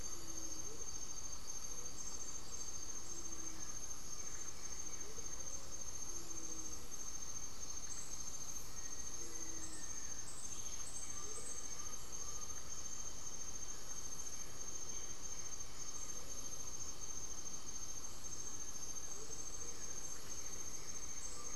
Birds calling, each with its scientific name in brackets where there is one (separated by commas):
Undulated Tinamou (Crypturellus undulatus), Amazonian Motmot (Momotus momota), Black-faced Antthrush (Formicarius analis), Gray-fronted Dove (Leptotila rufaxilla), unidentified bird, Blue-gray Saltator (Saltator coerulescens)